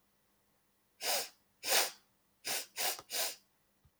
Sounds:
Sniff